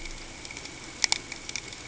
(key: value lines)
label: ambient
recorder: HydroMoth